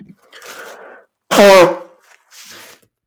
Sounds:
Sneeze